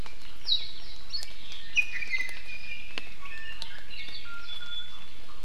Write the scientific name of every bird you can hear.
Zosterops japonicus, Drepanis coccinea